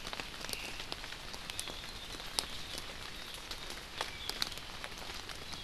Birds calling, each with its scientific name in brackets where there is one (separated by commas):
Omao (Myadestes obscurus), Hawaii Akepa (Loxops coccineus)